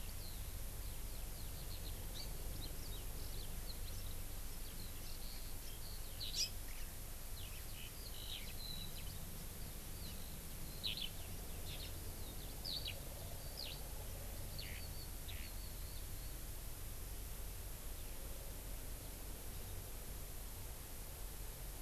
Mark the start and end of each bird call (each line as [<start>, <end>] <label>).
[0.00, 6.81] Eurasian Skylark (Alauda arvensis)
[2.11, 2.41] House Finch (Haemorhous mexicanus)
[6.31, 6.51] Hawaii Amakihi (Chlorodrepanis virens)
[7.31, 16.31] Eurasian Skylark (Alauda arvensis)